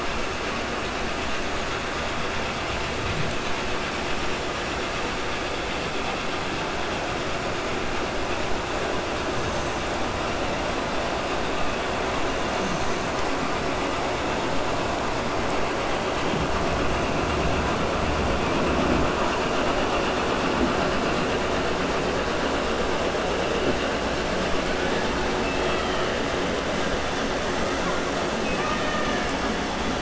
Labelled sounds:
25.4	26.1	killer whale, 1.3 to 4.2 kHz
28.4	29.3	killer whale, 1.2 to 3.7 kHz

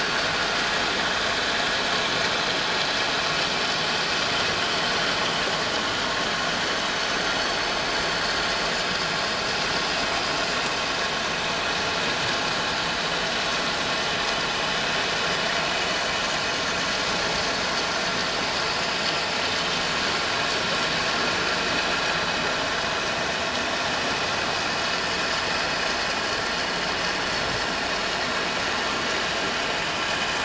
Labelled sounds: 7.4	7.6	vessel noise, 6.2 to 6.3 kHz

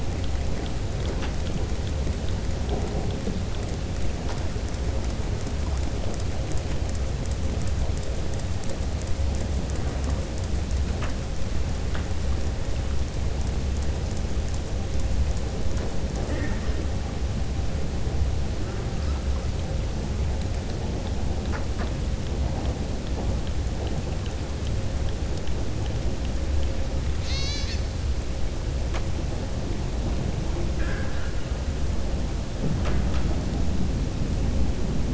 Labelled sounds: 30.7	31.4	killer whale, southern resident, 0.51 to 3.2 kHz

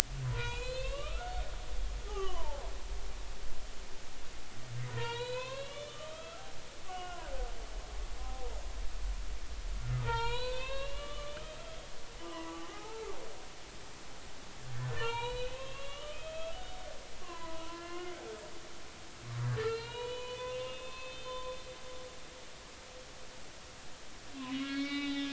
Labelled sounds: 0.2	1.3	humpback whale, 0.90 to 4.3 kHz
2.0	2.6	humpback whale, 0.80 to 3.1 kHz
4.9	7.3	humpback whale, 0.86 to 4.5 kHz
8.2	8.4	humpback whale, 0.99 to 1.1 kHz
10.0	11.9	humpback whale, 0.86 to 4.7 kHz
12.3	13.2	humpback whale, 0.80 to 1.4 kHz
14.9	16.8	humpback whale, 0.80 to 4.3 kHz
17.2	18.1	humpback whale, 0.93 to 2.9 kHz
19.6	21.6	humpback whale, 0.86 to 4.3 kHz
24.4	25.3	humpback whale, 1.1 to 4.6 kHz

